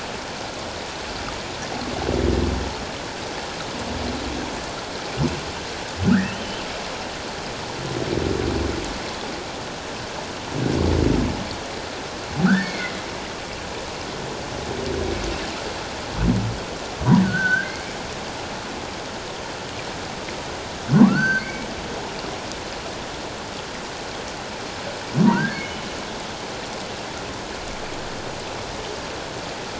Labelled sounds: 6.0	6.6	humpback whale, 1.2 to 3.2 kHz
12.4	13.0	humpback whale, 1.2 to 2.2 kHz
17.2	17.8	humpback whale, 1.4 to 1.7 kHz
21.1	21.7	humpback whale, 1.3 to 4.7 kHz
25.3	25.8	humpback whale, 1.3 to 2.3 kHz

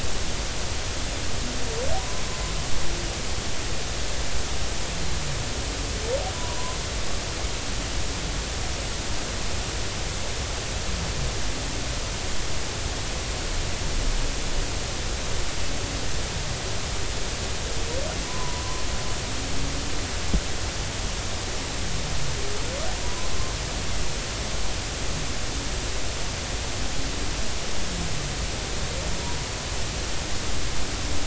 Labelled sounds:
2.0	2.2	humpback whale, 0.93 to 1.1 kHz
6.3	6.8	humpback whale, 0.93 to 1.1 kHz
18.3	18.6	humpback whale, 0.93 to 1.1 kHz
23.0	23.3	humpback whale, 0.93 to 1.1 kHz

